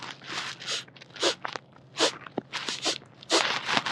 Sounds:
Sniff